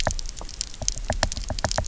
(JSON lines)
{"label": "biophony, knock", "recorder": "SoundTrap 300"}